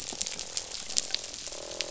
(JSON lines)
{"label": "biophony, croak", "recorder": "SoundTrap 500"}